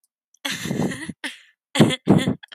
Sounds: Laughter